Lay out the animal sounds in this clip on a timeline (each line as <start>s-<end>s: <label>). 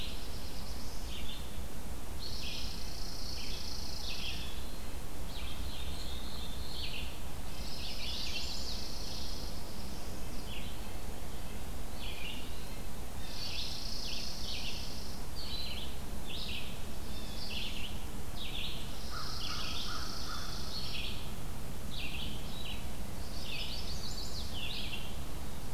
0.0s-25.7s: Red-eyed Vireo (Vireo olivaceus)
0.1s-1.2s: Black-throated Blue Warbler (Setophaga caerulescens)
2.0s-4.5s: Chipping Sparrow (Spizella passerina)
4.2s-4.8s: Blue Jay (Cyanocitta cristata)
4.4s-12.9s: Red-breasted Nuthatch (Sitta canadensis)
5.6s-7.1s: Black-throated Blue Warbler (Setophaga caerulescens)
7.4s-8.8s: Chimney Swift (Chaetura pelagica)
7.5s-9.6s: Chipping Sparrow (Spizella passerina)
9.1s-10.3s: Black-throated Blue Warbler (Setophaga caerulescens)
12.3s-12.9s: Eastern Wood-Pewee (Contopus virens)
13.3s-15.2s: Chipping Sparrow (Spizella passerina)
17.0s-17.5s: Blue Jay (Cyanocitta cristata)
18.8s-21.0s: Chipping Sparrow (Spizella passerina)
19.0s-20.6s: American Crow (Corvus brachyrhynchos)
20.1s-20.7s: Blue Jay (Cyanocitta cristata)
22.4s-22.9s: Eastern Wood-Pewee (Contopus virens)
23.0s-24.5s: Chimney Swift (Chaetura pelagica)